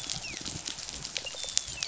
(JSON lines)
{"label": "biophony, rattle response", "recorder": "SoundTrap 500"}
{"label": "biophony, dolphin", "recorder": "SoundTrap 500"}